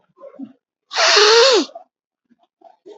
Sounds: Sniff